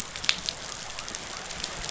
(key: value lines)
label: biophony
recorder: SoundTrap 500